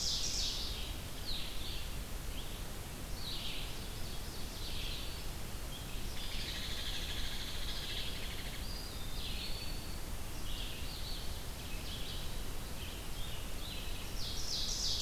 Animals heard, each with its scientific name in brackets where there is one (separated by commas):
Ovenbird (Seiurus aurocapilla), Red-eyed Vireo (Vireo olivaceus), Hairy Woodpecker (Dryobates villosus), Eastern Wood-Pewee (Contopus virens)